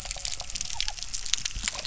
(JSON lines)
{"label": "biophony", "recorder": "SoundTrap 300"}